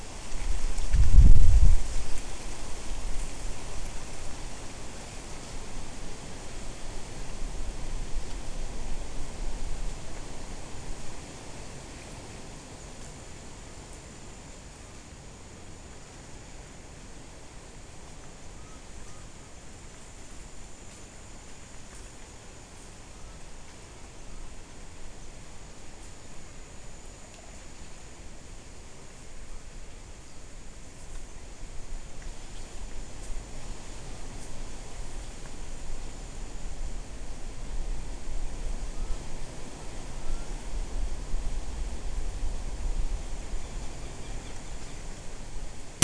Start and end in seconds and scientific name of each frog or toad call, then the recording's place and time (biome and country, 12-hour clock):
none
Cerrado, Brazil, 5:15pm